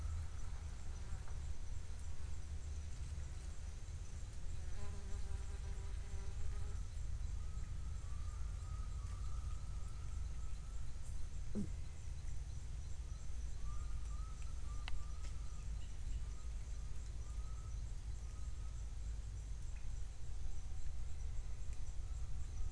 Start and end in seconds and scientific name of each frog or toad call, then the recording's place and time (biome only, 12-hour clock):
19.7	19.9	Leptodactylus podicipinus
Cerrado, 5:45pm